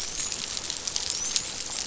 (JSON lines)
{"label": "biophony, dolphin", "recorder": "SoundTrap 500"}